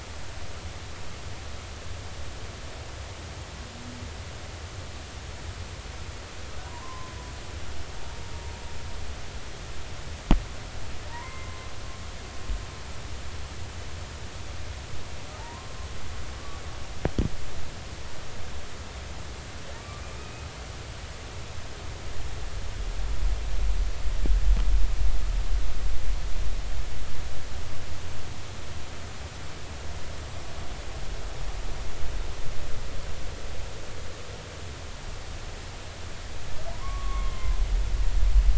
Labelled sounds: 6.7	7.1	humpback whale, 0.86 to 1.1 kHz
11.1	11.7	humpback whale, 0.90 to 2.3 kHz
15.4	15.8	humpback whale, 0.83 to 1.1 kHz
20.2	20.5	humpback whale, 2.4 to 2.6 kHz
36.7	37.6	humpback whale, 0.93 to 1.2 kHz

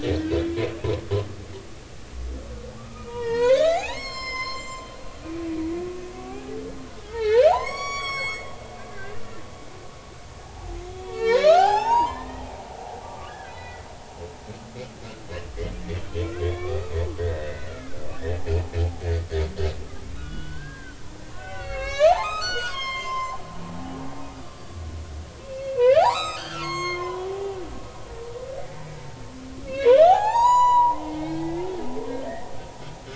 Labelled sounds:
2.8	6.5	humpback whale, 0.80 to 7.6 kHz
7.0	9.4	humpback whale, 0.80 to 7.9 kHz
10.4	12.5	humpback whale, 0.80 to 6.7 kHz
13.0	13.8	humpback whale, 1.1 to 4.0 kHz
16.2	18.1	humpback whale, 1.0 to 4.7 kHz
20.0	21.0	humpback whale, 1.0 to 3.5 kHz
21.3	24.0	humpback whale, 0.80 to 7.7 kHz
24.4	24.7	humpback whale, 1.1 to 1.2 kHz
25.4	27.6	humpback whale, 0.80 to 7.7 kHz
29.0	29.3	humpback whale, 0.86 to 0.93 kHz
29.7	31.7	humpback whale, 0.80 to 7.9 kHz
32.2	32.5	humpback whale, 1.7 to 2.0 kHz

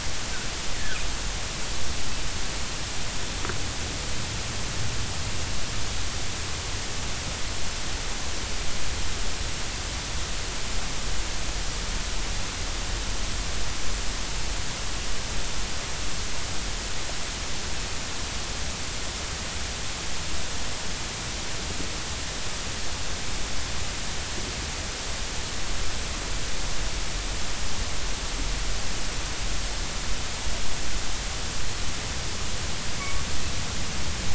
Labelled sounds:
33.0	33.2	humpback whale, 1.1 to 1.2 kHz

